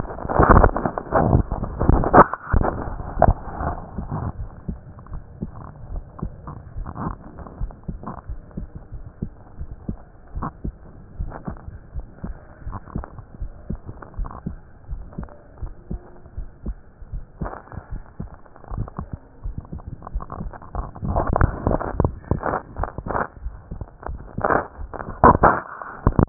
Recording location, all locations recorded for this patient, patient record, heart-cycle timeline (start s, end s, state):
aortic valve (AV)
aortic valve (AV)+pulmonary valve (PV)+tricuspid valve (TV)+mitral valve (MV)
#Age: Adolescent
#Sex: Female
#Height: 145.0 cm
#Weight: 30.8 kg
#Pregnancy status: False
#Murmur: Absent
#Murmur locations: nan
#Most audible location: nan
#Systolic murmur timing: nan
#Systolic murmur shape: nan
#Systolic murmur grading: nan
#Systolic murmur pitch: nan
#Systolic murmur quality: nan
#Diastolic murmur timing: nan
#Diastolic murmur shape: nan
#Diastolic murmur grading: nan
#Diastolic murmur pitch: nan
#Diastolic murmur quality: nan
#Outcome: Normal
#Campaign: 2015 screening campaign
0.00	5.89	unannotated
5.89	6.04	S1
6.04	6.18	systole
6.18	6.30	S2
6.30	6.74	diastole
6.74	6.88	S1
6.88	6.98	systole
6.98	7.14	S2
7.14	7.58	diastole
7.58	7.72	S1
7.72	7.87	systole
7.87	7.96	S2
7.96	8.30	diastole
8.30	8.40	S1
8.40	8.54	systole
8.54	8.66	S2
8.66	8.88	diastole
8.88	9.02	S1
9.02	9.20	systole
9.20	9.32	S2
9.32	9.58	diastole
9.58	9.70	S1
9.70	9.86	systole
9.86	9.98	S2
9.98	10.36	diastole
10.36	10.52	S1
10.52	10.62	systole
10.62	10.76	S2
10.76	11.18	diastole
11.18	11.32	S1
11.32	11.46	systole
11.46	11.58	S2
11.58	11.96	diastole
11.96	12.08	S1
12.08	12.22	systole
12.22	12.34	S2
12.34	12.68	diastole
12.68	12.80	S1
12.80	12.94	systole
12.94	13.06	S2
13.06	13.42	diastole
13.42	13.52	S1
13.52	13.68	systole
13.68	13.78	S2
13.78	14.18	diastole
14.18	14.32	S1
14.32	14.44	systole
14.44	14.54	S2
14.54	14.90	diastole
14.90	15.06	S1
15.06	15.16	systole
15.16	15.28	S2
15.28	15.62	diastole
15.62	15.72	S1
15.72	15.88	systole
15.88	16.00	S2
16.00	16.38	diastole
16.38	16.48	S1
16.48	16.64	systole
16.64	16.76	S2
16.76	17.14	diastole
17.14	17.24	S1
17.24	17.40	systole
17.40	17.52	S2
17.52	17.92	diastole
17.92	18.02	S1
18.02	18.16	systole
18.16	18.28	S2
18.28	18.72	diastole
18.72	26.29	unannotated